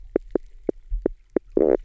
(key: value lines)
label: biophony, knock croak
recorder: SoundTrap 300